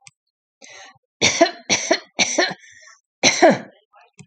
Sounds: Cough